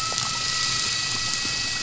{"label": "anthrophony, boat engine", "recorder": "SoundTrap 500"}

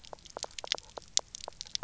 {"label": "biophony", "recorder": "SoundTrap 300"}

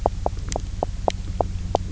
{"label": "biophony, knock croak", "recorder": "SoundTrap 300"}
{"label": "anthrophony, boat engine", "recorder": "SoundTrap 300"}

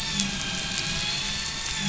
{"label": "anthrophony, boat engine", "recorder": "SoundTrap 500"}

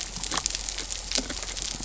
{"label": "biophony", "recorder": "SoundTrap 300"}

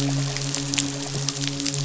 {"label": "biophony, midshipman", "recorder": "SoundTrap 500"}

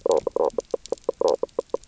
{"label": "biophony, knock croak", "recorder": "SoundTrap 300"}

